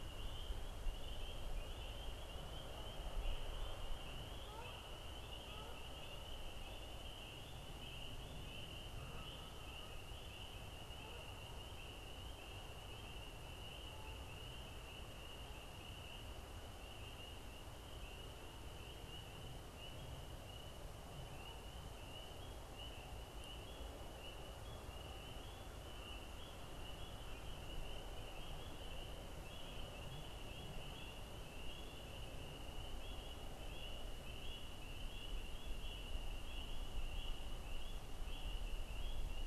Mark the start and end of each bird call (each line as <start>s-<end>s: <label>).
2.8s-6.4s: Canada Goose (Branta canadensis)
8.9s-10.2s: Canada Goose (Branta canadensis)
10.9s-11.4s: Canada Goose (Branta canadensis)
13.8s-14.5s: Canada Goose (Branta canadensis)